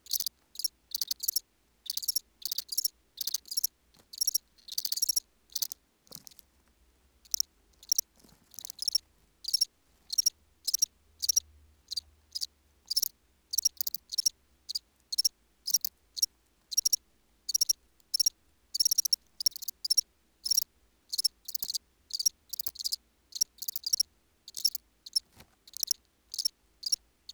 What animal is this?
Acheta domesticus, an orthopteran